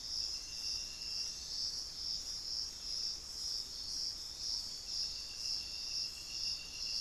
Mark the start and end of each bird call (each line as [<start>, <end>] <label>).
[0.00, 6.36] Thrush-like Wren (Campylorhynchus turdinus)